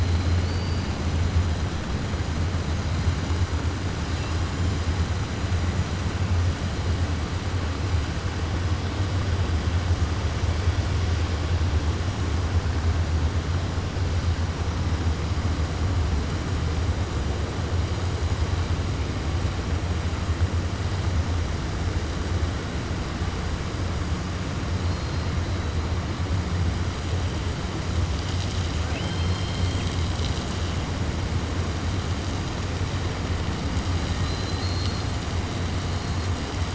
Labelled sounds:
28.8	30.0	killer whale, 0.69 to 5.3 kHz
34.1	35.1	killer whale, 2.9 to 5.1 kHz

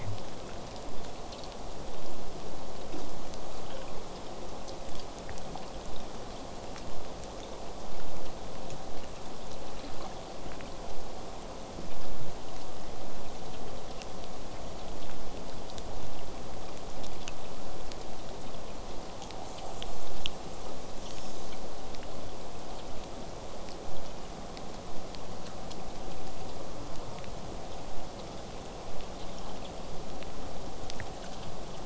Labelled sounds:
11.9	16.9	vessel noise, 0 to 8.0 kHz
19.4	21.6	killer whale, southern resident, J pod, call S10, 2.5 to 8.0 kHz
26.6	27.3	killer whale, southern resident, J pod, call S04, 0.26 to 1.5 kHz

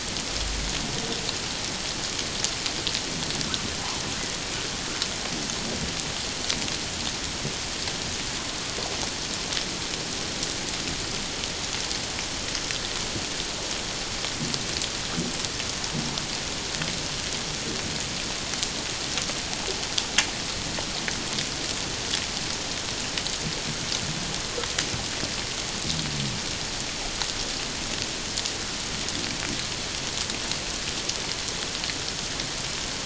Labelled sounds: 3.8	4.0	humpback whale, 0.78 to 1.2 kHz

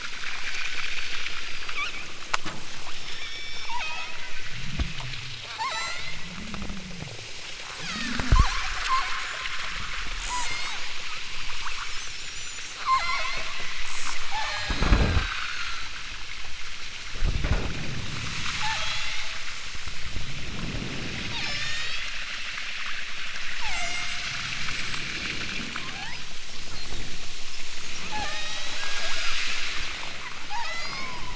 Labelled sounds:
0.2	2.0	killer whale, southern Alaska resident, 0.73 to 6.3 kHz
2.8	4.4	killer whale, southern Alaska resident, 0.41 to 8.0 kHz
5.4	6.2	killer whale, southern Alaska resident, 0.28 to 8.0 kHz
7.8	9.3	killer whale, southern Alaska resident, 0.50 to 4.6 kHz
10.2	11.0	killer whale, southern Alaska resident, 0.50 to 8.0 kHz
12.7	13.5	killer whale, southern Alaska resident, 0.37 to 8.0 kHz
14.3	15.9	killer whale, southern Alaska resident, 0.50 to 8.0 kHz
18.4	19.3	killer whale, southern Alaska resident, 0.41 to 8.0 kHz
21.4	22.0	killer whale, southern Alaska resident, 0.83 to 8.0 kHz
23.5	24.3	killer whale, southern Alaska resident, 0.32 to 8.0 kHz
25.7	26.3	killer whale, southern Alaska resident, 0.28 to 3.7 kHz
28.1	29.8	killer whale, southern Alaska resident, 0.41 to 7.1 kHz
30.5	31.3	killer whale, southern Alaska resident, 0.41 to 8.0 kHz

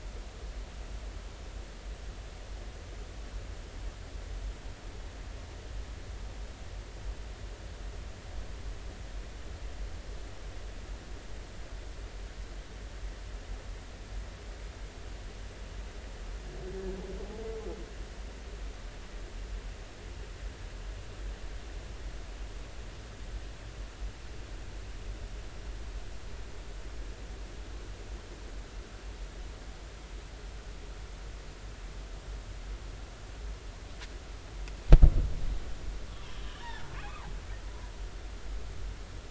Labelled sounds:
36.1	37.3	humpback whale, 0.80 to 3.6 kHz

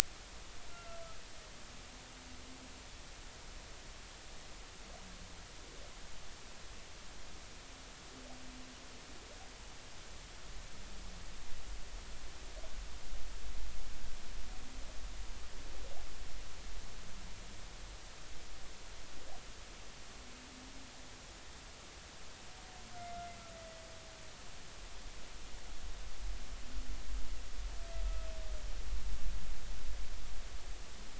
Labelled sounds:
0.7	1.0	humpback whale, 1.3 to 1.4 kHz
23.5	23.8	humpback whale, 1.9 to 2.0 kHz

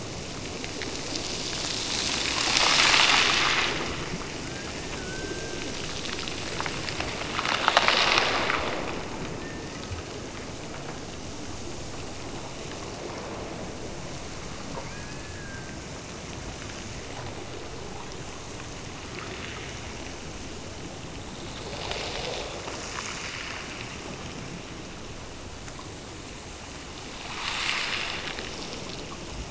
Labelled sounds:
4.4	5.8	killer whale, Bigg's (transient), Gulf of Alaska transient, 1.2 to 2.0 kHz
14.8	15.9	killer whale, Bigg's (transient), Gulf of Alaska transient, 1.3 to 2.6 kHz

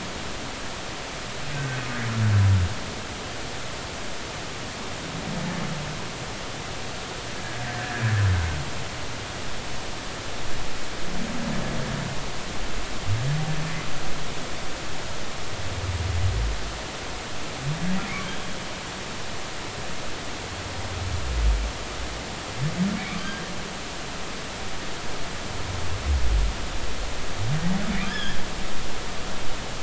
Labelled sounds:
1.5	1.8	humpback whale, 1.5 to 1.6 kHz
18.1	18.3	humpback whale, 2.1 to 2.4 kHz
23.1	23.5	humpback whale, 1.1 to 1.7 kHz
28.0	28.4	humpback whale, 1.5 to 5.3 kHz

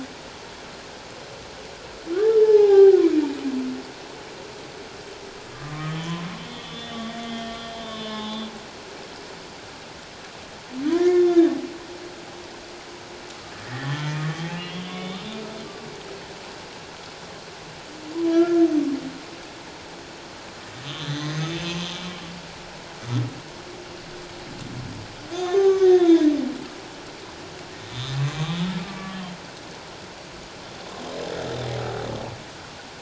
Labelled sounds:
2.1	3.0	humpback whale, 0.78 to 1.8 kHz
5.5	8.5	humpback whale, 0.81 to 3.8 kHz
10.8	11.3	humpback whale, 1.6 to 7.0 kHz
13.6	14.1	humpback whale, 1.7 to 3.4 kHz
14.5	15.2	humpback whale, 2.1 to 3.8 kHz
18.3	18.7	humpback whale, 1.3 to 1.8 kHz
20.8	21.6	humpback whale, 1.8 to 6.6 kHz
25.3	26.3	humpback whale, 0.78 to 6.5 kHz
27.9	29.2	humpback whale, 1.1 to 3.9 kHz

